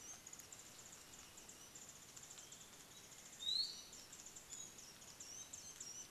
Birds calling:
Warbling White-eye (Zosterops japonicus), Iiwi (Drepanis coccinea)

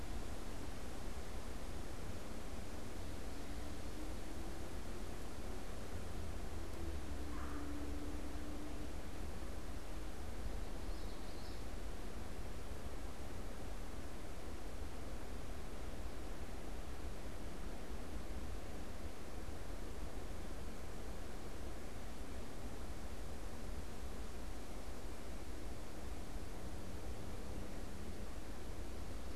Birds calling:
Common Yellowthroat (Geothlypis trichas), Red-bellied Woodpecker (Melanerpes carolinus)

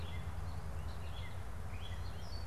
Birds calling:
American Goldfinch (Spinus tristis), Gray Catbird (Dumetella carolinensis)

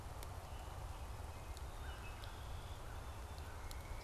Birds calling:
Pileated Woodpecker (Dryocopus pileatus), Wood Thrush (Hylocichla mustelina), American Crow (Corvus brachyrhynchos)

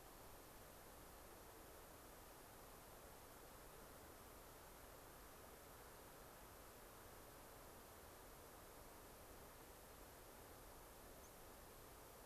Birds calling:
White-crowned Sparrow (Zonotrichia leucophrys)

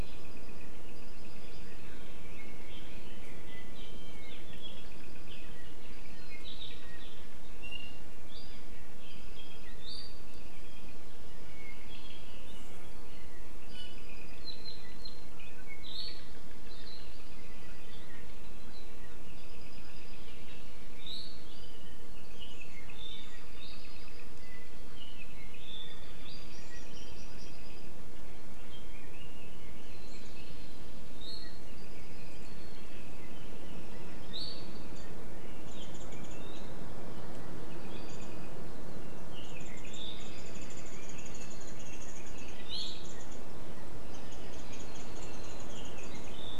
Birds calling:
Apapane (Himatione sanguinea), Iiwi (Drepanis coccinea), Warbling White-eye (Zosterops japonicus)

